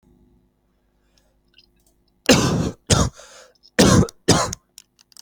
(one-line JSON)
{"expert_labels": [{"quality": "ok", "cough_type": "dry", "dyspnea": true, "wheezing": false, "stridor": false, "choking": false, "congestion": false, "nothing": false, "diagnosis": "COVID-19", "severity": "mild"}], "age": 24, "gender": "male", "respiratory_condition": false, "fever_muscle_pain": true, "status": "symptomatic"}